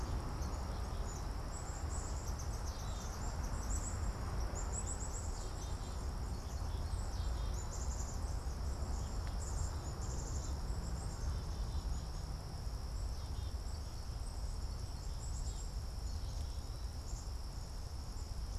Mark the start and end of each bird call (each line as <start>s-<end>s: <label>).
0.0s-7.4s: Swamp Sparrow (Melospiza georgiana)
0.0s-18.6s: Black-capped Chickadee (Poecile atricapillus)